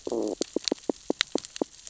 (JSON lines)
{"label": "biophony, stridulation", "recorder": "SoundTrap 600 or HydroMoth"}